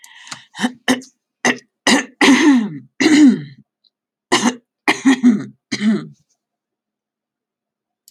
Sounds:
Throat clearing